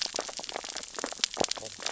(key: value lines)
label: biophony, sea urchins (Echinidae)
recorder: SoundTrap 600 or HydroMoth

label: biophony, stridulation
recorder: SoundTrap 600 or HydroMoth